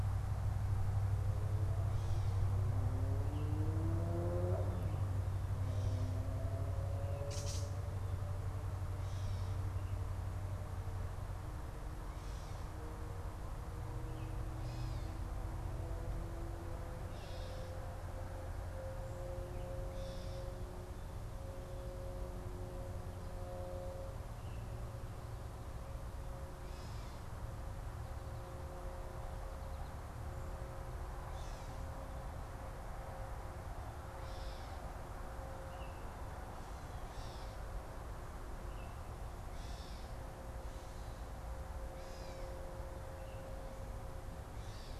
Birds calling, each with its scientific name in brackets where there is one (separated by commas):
Baltimore Oriole (Icterus galbula), Gray Catbird (Dumetella carolinensis)